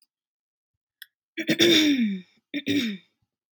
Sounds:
Throat clearing